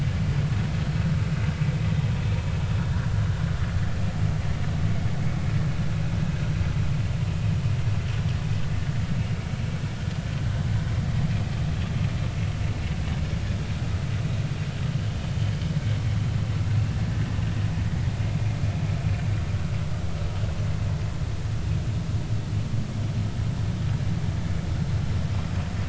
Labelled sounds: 16.9	17.2	vessel noise, 1.7 to 1.8 kHz

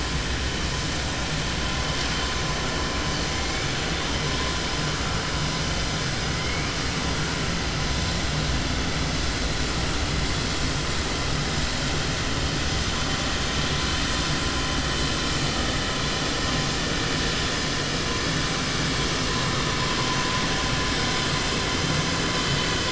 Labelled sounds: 3.1	3.9	killer whale, 1.4 to 3.2 kHz
6.2	6.8	killer whale, 1.5 to 3.1 kHz

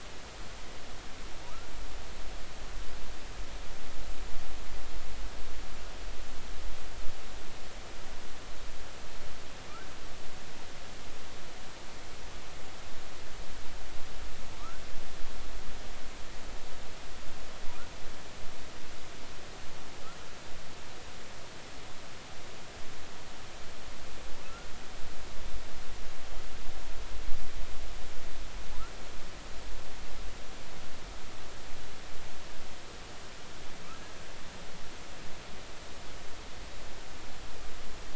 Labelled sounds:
14.6	14.9	humpback whale, 1.1 to 1.6 kHz
24.4	24.7	humpback whale, 1.2 to 1.5 kHz

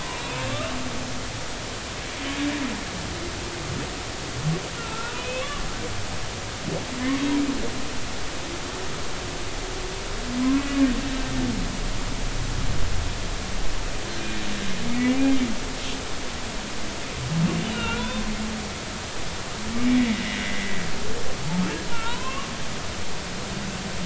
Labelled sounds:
0.1	0.4	humpback whale, 2.3 to 2.6 kHz
4.8	5.6	humpback whale, 0.99 to 3.1 kHz
10.4	10.7	humpback whale, 0.99 to 1.2 kHz
14.9	15.3	humpback whale, 2.1 to 2.5 kHz
17.6	18.2	humpback whale, 0.93 to 3.7 kHz
19.7	20.8	humpback whale, 1.9 to 2.4 kHz
21.9	22.5	humpback whale, 0.90 to 3.1 kHz

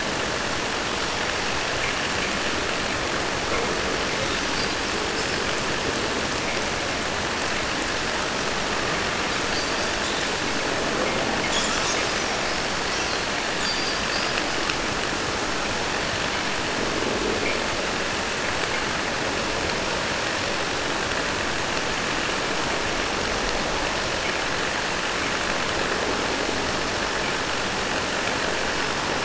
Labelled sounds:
3.4	5.4	killer whale, 0.15 to 5.8 kHz
9.3	10.4	killer whale, 2.8 to 7.9 kHz
11.4	14.4	killer whale, 1.3 to 8.0 kHz

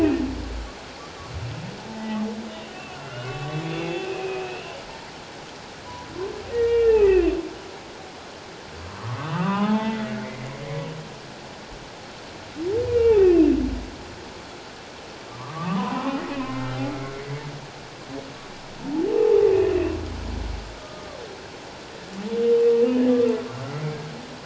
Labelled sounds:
1.9	2.2	humpback whale, 0.81 to 2.0 kHz
2.7	4.4	humpback whale, 1.1 to 3.5 kHz
6.5	7.1	humpback whale, 1.7 to 2.9 kHz
8.8	10.5	humpback whale, 0.78 to 3.6 kHz
12.9	13.2	humpback whale, 2.2 to 2.9 kHz
15.3	17.2	humpback whale, 0.91 to 2.3 kHz
20.8	21.2	humpback whale, 1.0 to 1.3 kHz
23.7	23.9	humpback whale, 1.9 to 2.1 kHz

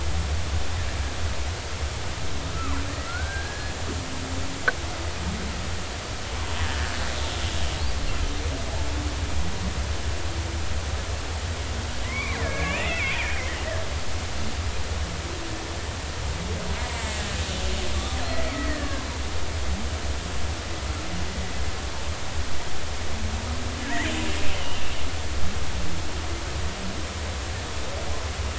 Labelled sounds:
2.5	2.8	killer whale, Bigg's (transient), 0.96 to 1.4 kHz
3.1	3.7	killer whale, Bigg's (transient), 1.3 to 1.7 kHz
6.6	6.9	killer whale, Bigg's (transient), 1.6 to 1.9 kHz
12.0	13.3	killer whale, Bigg's (transient), 0.96 to 2.9 kHz
16.9	17.3	killer whale, Bigg's (transient), 1.8 to 2.1 kHz
18.4	19.1	killer whale, Bigg's (transient), 0.99 to 2.4 kHz
23.8	24.1	killer whale, Bigg's (transient), 1.6 to 2.1 kHz
24.5	24.9	killer whale, Bigg's (transient), 2.6 to 3.1 kHz

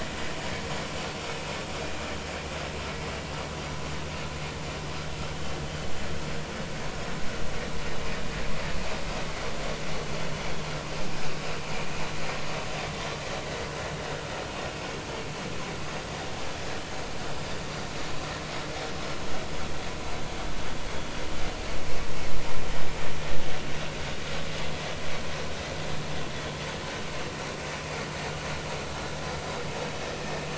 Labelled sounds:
6.9	7.2	vessel noise, 5.2 to 5.5 kHz

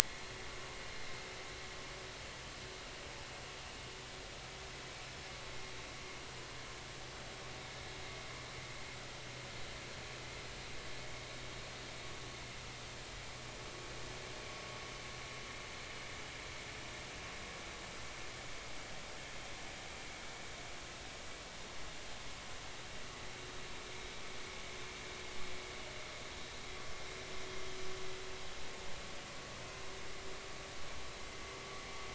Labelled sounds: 0.0	0.3	vessel noise, 1.9 to 2.2 kHz

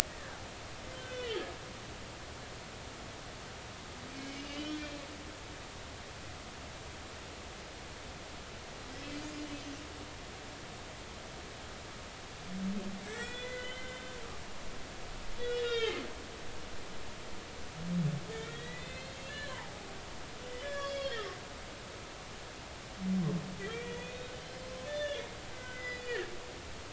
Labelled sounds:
0.9	1.5	humpback whale, 1.4 to 3.4 kHz
4.1	4.8	humpback whale, 2.1 to 5.3 kHz
9.4	9.6	humpback whale, 2.8 to 3.0 kHz
13.0	14.0	humpback whale, 1.4 to 7.9 kHz
15.4	16.0	humpback whale, 1.3 to 5.2 kHz
18.3	19.7	humpback whale, 0.80 to 7.1 kHz
20.6	21.4	humpback whale, 1.6 to 6.8 kHz
23.6	24.3	humpback whale, 1.8 to 3.5 kHz
24.9	26.3	humpback whale, 1.4 to 5.1 kHz

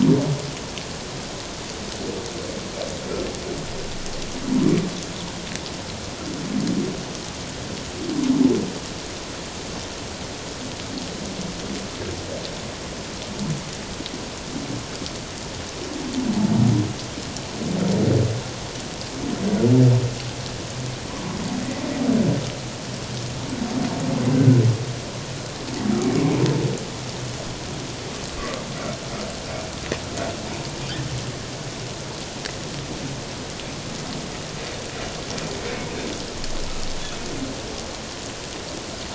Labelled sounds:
26.0	26.4	humpback whale, 2.1 to 2.3 kHz
35.7	35.9	humpback whale, 2.1 to 2.3 kHz

